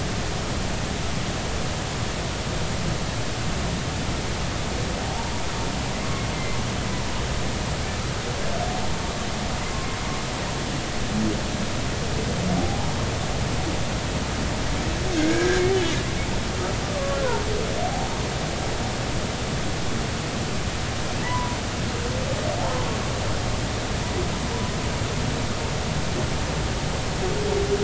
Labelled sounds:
5.0	5.3	humpback whale, 0.80 to 0.99 kHz
6.3	6.6	humpback whale, 2.0 to 2.1 kHz
12.6	12.9	humpback whale, 0.80 to 1.0 kHz
15.2	15.6	humpback whale, 1.5 to 2.3 kHz
16.8	17.2	humpback whale, 1.1 to 1.3 kHz
17.8	18.1	humpback whale, 0.80 to 0.93 kHz
21.2	21.6	humpback whale, 0.86 to 1.1 kHz

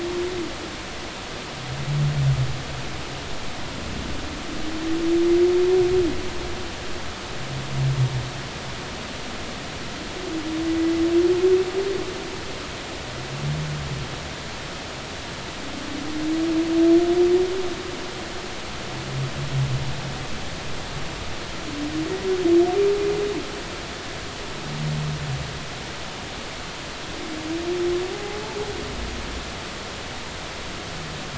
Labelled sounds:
28.1	28.4	humpback whale, 0.80 to 0.86 kHz

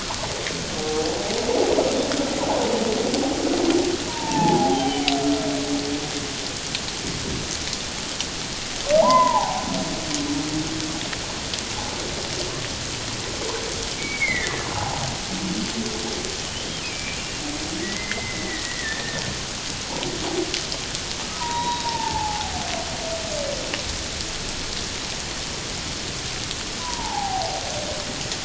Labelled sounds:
0.8	1.1	humpback whale, 0.78 to 0.84 kHz
4.1	5.1	humpback whale, 0.78 to 3.3 kHz
9.0	9.6	humpback whale, 0.78 to 2.1 kHz
14.0	15.0	humpback whale, 0.78 to 2.3 kHz
16.5	17.4	humpback whale, 2.3 to 3.3 kHz
17.8	19.2	humpback whale, 1.7 to 2.1 kHz
21.1	22.6	humpback whale, 0.78 to 3.9 kHz
26.8	27.6	humpback whale, 0.78 to 1.1 kHz

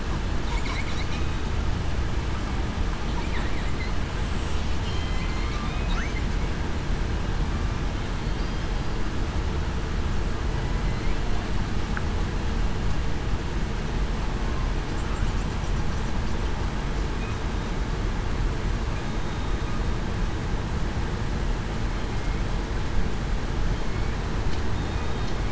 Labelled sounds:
4.8	5.2	killer whale, southern resident, 3.1 to 3.2 kHz
5.6	6.0	killer whale, southern resident, 2.4 to 2.6 kHz
19.0	19.6	killer whale, southern resident, 3.7 to 3.8 kHz

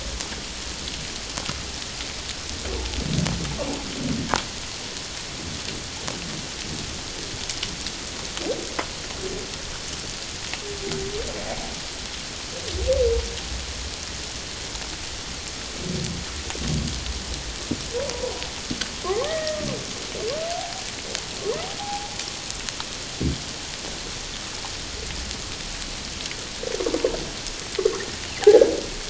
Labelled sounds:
19.0	19.7	humpback whale, 0.78 to 2.0 kHz
21.8	22.1	humpback whale, 0.78 to 0.94 kHz

